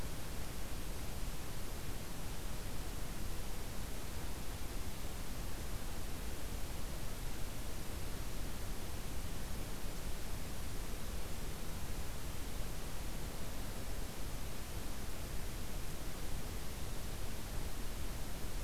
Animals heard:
forest ambience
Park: Katahdin Woods and Waters National Monument